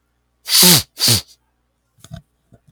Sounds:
Sneeze